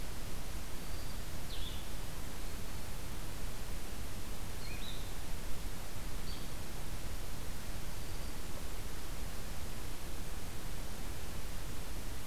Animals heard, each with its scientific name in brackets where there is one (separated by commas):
Blue-headed Vireo (Vireo solitarius), Black-throated Green Warbler (Setophaga virens)